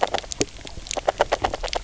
{"label": "biophony, grazing", "recorder": "SoundTrap 300"}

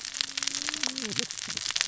{"label": "biophony, cascading saw", "recorder": "SoundTrap 600 or HydroMoth"}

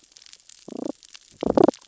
{"label": "biophony, damselfish", "recorder": "SoundTrap 600 or HydroMoth"}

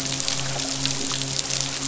{"label": "biophony", "recorder": "SoundTrap 500"}
{"label": "biophony, midshipman", "recorder": "SoundTrap 500"}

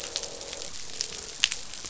{"label": "biophony, croak", "recorder": "SoundTrap 500"}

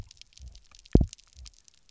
{"label": "biophony, double pulse", "recorder": "SoundTrap 300"}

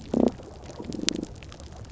{"label": "biophony, damselfish", "recorder": "SoundTrap 300"}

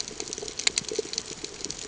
{"label": "ambient", "recorder": "HydroMoth"}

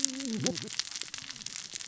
{"label": "biophony, cascading saw", "recorder": "SoundTrap 600 or HydroMoth"}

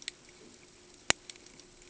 {"label": "ambient", "recorder": "HydroMoth"}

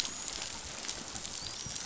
{"label": "biophony, dolphin", "recorder": "SoundTrap 500"}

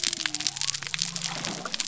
{"label": "biophony", "recorder": "SoundTrap 300"}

